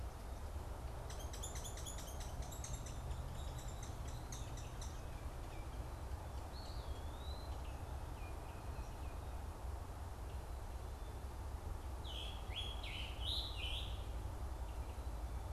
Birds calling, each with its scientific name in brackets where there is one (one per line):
Scarlet Tanager (Piranga olivacea)
Hairy Woodpecker (Dryobates villosus)
Eastern Wood-Pewee (Contopus virens)